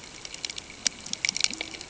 {"label": "ambient", "recorder": "HydroMoth"}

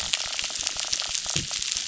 {"label": "biophony, crackle", "recorder": "SoundTrap 600"}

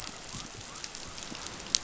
{"label": "biophony", "recorder": "SoundTrap 500"}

